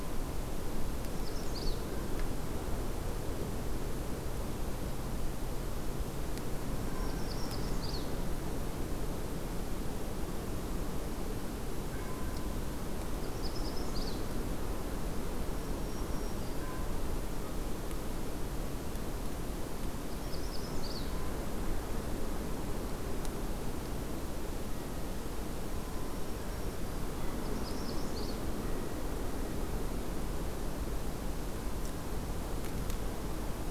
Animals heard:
Black-throated Green Warbler (Setophaga virens)
Magnolia Warbler (Setophaga magnolia)

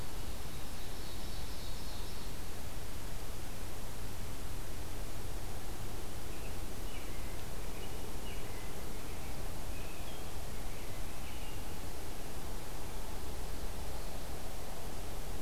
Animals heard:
American Robin (Turdus migratorius)
Ovenbird (Seiurus aurocapilla)

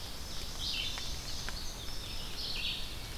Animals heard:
Red-eyed Vireo (Vireo olivaceus)
Ovenbird (Seiurus aurocapilla)
Indigo Bunting (Passerina cyanea)

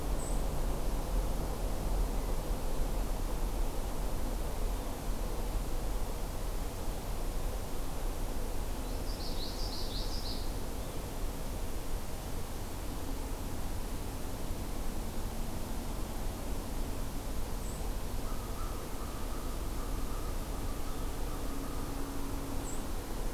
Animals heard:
Common Yellowthroat (Geothlypis trichas)

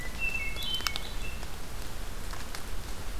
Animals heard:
Hermit Thrush (Catharus guttatus)

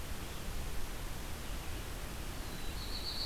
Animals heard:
Black-throated Blue Warbler (Setophaga caerulescens)

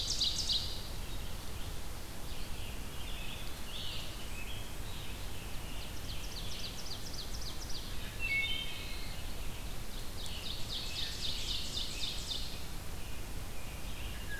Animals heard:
Red-eyed Vireo (Vireo olivaceus)
Scarlet Tanager (Piranga olivacea)
Wood Thrush (Hylocichla mustelina)
Ovenbird (Seiurus aurocapilla)

